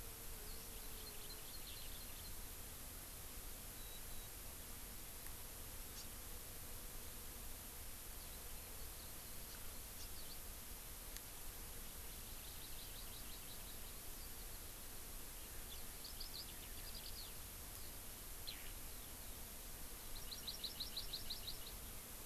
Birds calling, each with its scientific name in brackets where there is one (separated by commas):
Eurasian Skylark (Alauda arvensis), House Finch (Haemorhous mexicanus), Warbling White-eye (Zosterops japonicus), Hawaii Amakihi (Chlorodrepanis virens)